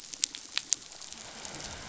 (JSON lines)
{"label": "biophony", "recorder": "SoundTrap 500"}